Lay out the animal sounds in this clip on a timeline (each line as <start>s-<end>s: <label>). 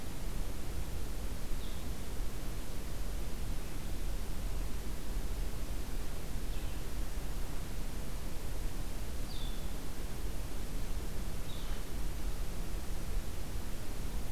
0.0s-2.4s: Blue-headed Vireo (Vireo solitarius)
6.1s-14.3s: Blue-headed Vireo (Vireo solitarius)